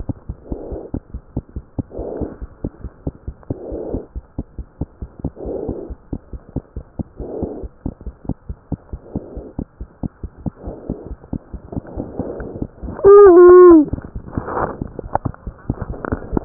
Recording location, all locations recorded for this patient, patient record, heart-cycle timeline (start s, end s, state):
pulmonary valve (PV)
aortic valve (AV)+pulmonary valve (PV)+tricuspid valve (TV)+mitral valve (MV)
#Age: Child
#Sex: Female
#Height: 83.0 cm
#Weight: 10.5 kg
#Pregnancy status: False
#Murmur: Absent
#Murmur locations: nan
#Most audible location: nan
#Systolic murmur timing: nan
#Systolic murmur shape: nan
#Systolic murmur grading: nan
#Systolic murmur pitch: nan
#Systolic murmur quality: nan
#Diastolic murmur timing: nan
#Diastolic murmur shape: nan
#Diastolic murmur grading: nan
#Diastolic murmur pitch: nan
#Diastolic murmur quality: nan
#Outcome: Normal
#Campaign: 2015 screening campaign
0.00	0.91	unannotated
0.91	1.00	S1
1.00	1.12	systole
1.12	1.22	S2
1.22	1.34	diastole
1.34	1.43	S1
1.43	1.54	systole
1.54	1.64	S2
1.64	1.77	diastole
1.77	1.87	S1
1.87	1.96	systole
1.96	2.06	S2
2.06	2.19	diastole
2.19	2.29	S1
2.29	2.40	systole
2.40	2.50	S2
2.50	2.62	diastole
2.62	2.70	S1
2.70	2.82	systole
2.82	2.89	S2
2.89	3.00	diastole
3.00	3.14	S1
3.14	3.26	systole
3.26	3.36	S2
3.36	3.47	diastole
3.47	3.56	S1
3.56	3.69	systole
3.69	3.79	S2
3.79	3.92	diastole
3.92	4.02	S1
4.02	4.13	systole
4.13	4.23	S2
4.23	4.36	diastole
4.36	4.46	S1
4.46	4.57	systole
4.57	4.66	S2
4.66	4.78	diastole
4.78	4.88	S1
4.88	5.00	systole
5.00	5.09	S2
5.09	5.21	diastole
5.21	5.32	S1
5.32	16.45	unannotated